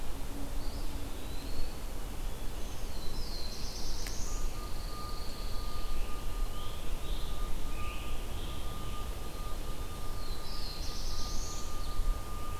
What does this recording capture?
Eastern Wood-Pewee, Black-throated Blue Warbler, Pine Warbler, Scarlet Tanager, Ovenbird